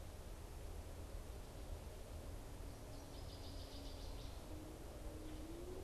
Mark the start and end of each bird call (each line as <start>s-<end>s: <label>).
2.7s-4.7s: Northern Waterthrush (Parkesia noveboracensis)